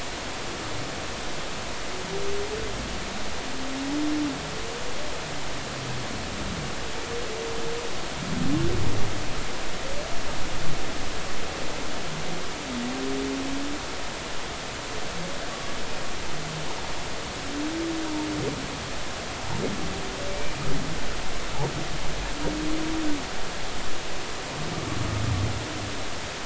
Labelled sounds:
15.5	15.7	humpback whale, 1.1 to 1.2 kHz
20.3	20.7	humpback whale, 2.3 to 2.5 kHz

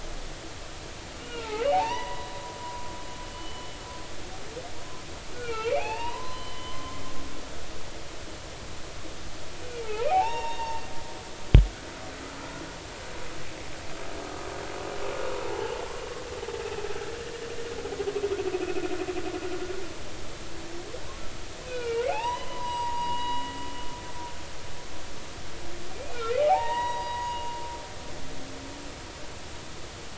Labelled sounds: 1.2	2.3	humpback whale, 0.80 to 3.0 kHz
2.6	2.9	humpback whale, 0.93 to 1.1 kHz
3.2	3.7	humpback whale, 2.9 to 3.0 kHz
5.3	7.0	humpback whale, 0.80 to 3.2 kHz
9.7	10.8	humpback whale, 0.80 to 5.6 kHz
15.4	15.7	humpback whale, 0.80 to 0.93 kHz
21.7	23.5	humpback whale, 0.80 to 7.8 kHz
25.9	27.4	humpback whale, 0.80 to 4.0 kHz

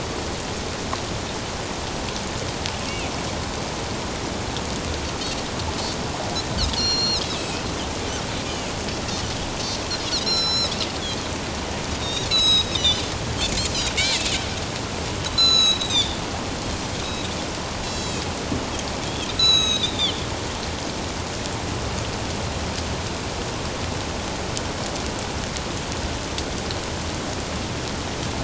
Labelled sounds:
6.8	7.6	Pacific white-sided dolphin, 2.4 to 7.1 kHz
10.2	10.7	Pacific white-sided dolphin, 3.8 to 8.0 kHz
12.0	13.0	Pacific white-sided dolphin, 1.2 to 7.9 kHz
15.3	16.2	Pacific white-sided dolphin, 1.2 to 6.8 kHz
17.0	17.3	Pacific white-sided dolphin, 3.6 to 3.9 kHz
17.8	18.2	Pacific white-sided dolphin, 3.1 to 7.4 kHz
19.4	20.3	Pacific white-sided dolphin, 1.2 to 7.8 kHz

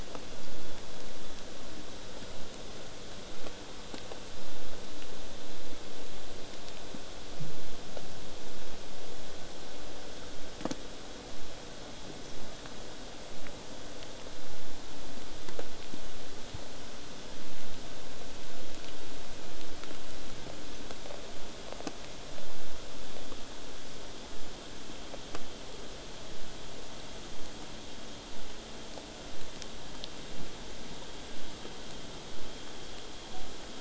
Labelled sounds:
24.3	29.3	vessel noise, 0 to 8.0 kHz

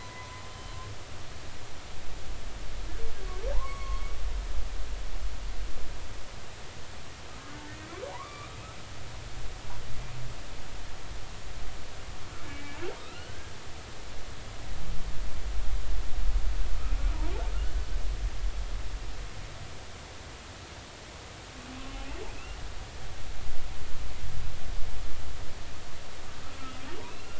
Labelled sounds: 0.0	1.0	humpback whale, 0.80 to 3.1 kHz
3.5	4.0	humpback whale, 0.80 to 2.3 kHz
8.1	8.6	humpback whale, 0.80 to 2.5 kHz
12.5	13.5	humpback whale, 1.1 to 3.1 kHz
22.3	22.6	humpback whale, 2.3 to 2.8 kHz
27.0	27.3	humpback whale, 2.3 to 2.8 kHz

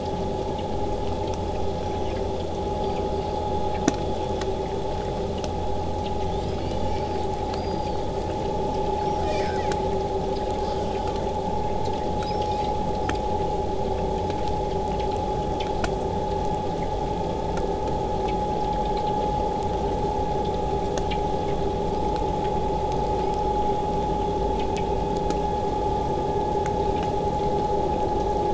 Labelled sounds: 1.4	3.8	killer whale, southern resident, whistle, 3.9 to 8.0 kHz
6.3	8.1	killer whale, southern resident, 1.1 to 8.0 kHz
8.9	9.7	killer whale, southern resident, 0.97 to 8.0 kHz
10.5	11.2	killer whale, southern resident, 0.93 to 8.0 kHz
12.2	13.3	killer whale, southern resident, 1.0 to 8.0 kHz
13.5	18.5	vessel noise, 0 to 8.0 kHz
23.2	23.5	killer whale, southern resident, 1.8 to 8.0 kHz

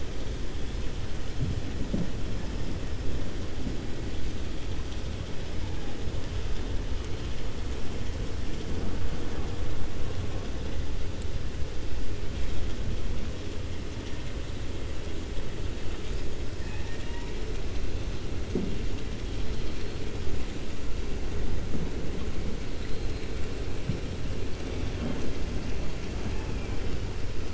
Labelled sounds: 16.6	17.0	killer whale, 0.83 to 2.8 kHz
22.8	23.3	killer whale, 3.2 to 4.2 kHz

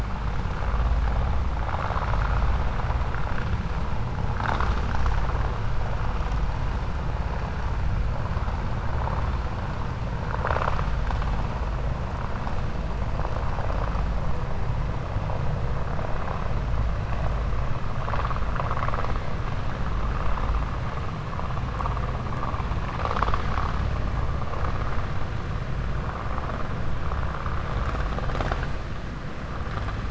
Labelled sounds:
18.4	19.1	vessel noise, 0.52 to 3.0 kHz

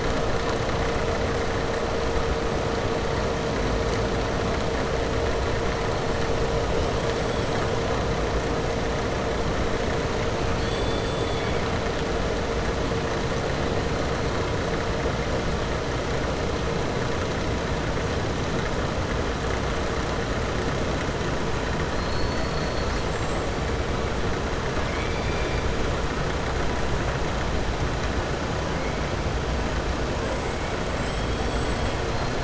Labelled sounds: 10.5	11.6	killer whale, southern resident, 2.2 to 4.7 kHz
21.9	23.7	killer whale, southern resident, 4.2 to 8.0 kHz
24.7	25.6	killer whale, southern resident, 1.6 to 4.3 kHz

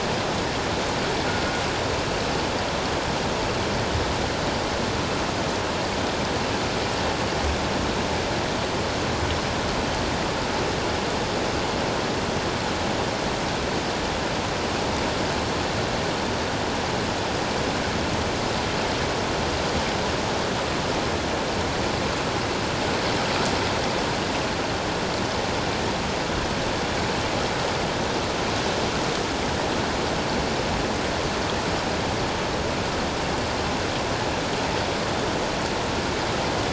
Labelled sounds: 1.3	1.6	metallic clang, 1.4 to 1.5 kHz

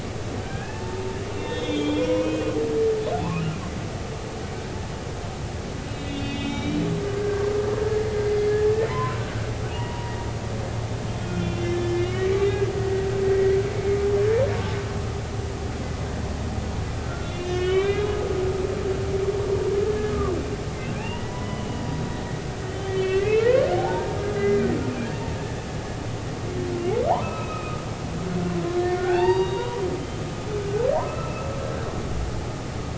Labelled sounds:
0.4	2.5	humpback whale, 0.83 to 3.7 kHz
3.2	3.4	humpback whale, 0.80 to 1.2 kHz
5.9	6.9	humpback whale, 2.2 to 3.9 kHz
7.2	7.5	humpback whale, 1.5 to 1.7 kHz
8.2	9.2	humpback whale, 0.86 to 2.1 kHz
9.7	10.1	humpback whale, 0.90 to 3.0 kHz
11.2	13.6	humpback whale, 1.7 to 3.5 kHz
17.0	18.1	humpback whale, 1.3 to 3.9 kHz
19.8	20.1	humpback whale, 1.6 to 1.8 kHz
20.9	21.8	humpback whale, 0.80 to 3.0 kHz
22.7	23.5	humpback whale, 1.5 to 3.5 kHz
23.8	24.7	humpback whale, 0.80 to 2.1 kHz
27.1	27.8	humpback whale, 0.80 to 2.7 kHz
28.8	29.8	humpback whale, 0.80 to 4.8 kHz
31.0	31.5	humpback whale, 1.2 to 2.8 kHz

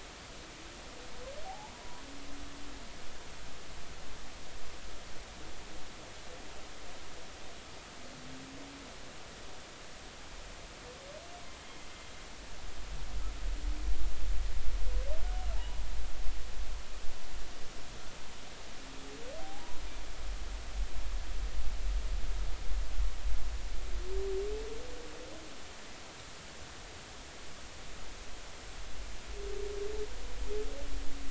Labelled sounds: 1.4	1.7	humpback whale, 0.80 to 0.99 kHz
11.6	11.9	humpback whale, 2.0 to 2.2 kHz
15.5	15.9	humpback whale, 0.83 to 1.0 kHz
19.4	19.8	humpback whale, 0.80 to 1.0 kHz

